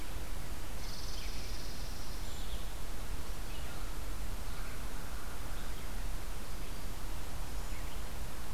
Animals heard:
Chipping Sparrow (Spizella passerina)

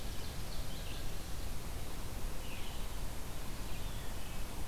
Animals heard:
Ovenbird (Seiurus aurocapilla), Wood Thrush (Hylocichla mustelina), Red-eyed Vireo (Vireo olivaceus)

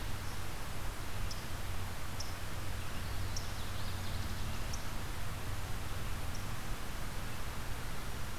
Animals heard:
Louisiana Waterthrush (Parkesia motacilla), unknown mammal

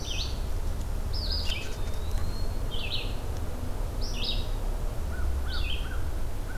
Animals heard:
Eastern Wood-Pewee (Contopus virens), American Crow (Corvus brachyrhynchos), Red-eyed Vireo (Vireo olivaceus)

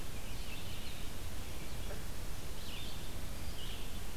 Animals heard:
Red-eyed Vireo (Vireo olivaceus), Blue-headed Vireo (Vireo solitarius)

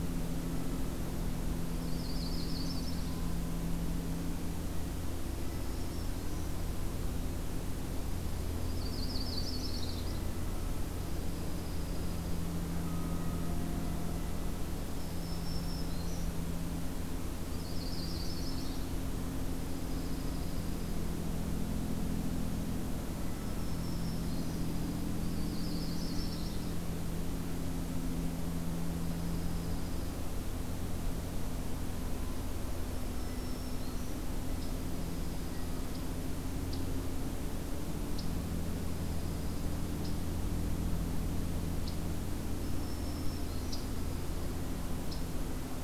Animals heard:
Black-throated Green Warbler (Setophaga virens), Yellow-rumped Warbler (Setophaga coronata), Dark-eyed Junco (Junco hyemalis)

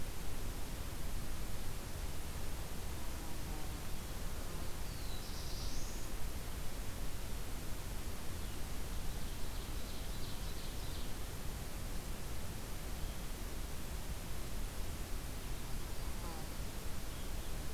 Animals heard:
Black-throated Blue Warbler (Setophaga caerulescens), Ovenbird (Seiurus aurocapilla)

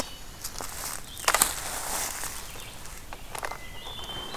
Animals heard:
Red-eyed Vireo (Vireo olivaceus), Yellow-bellied Sapsucker (Sphyrapicus varius)

